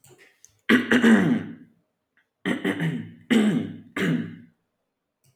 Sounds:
Throat clearing